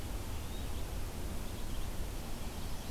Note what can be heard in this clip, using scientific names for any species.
Vireo olivaceus, Setophaga pensylvanica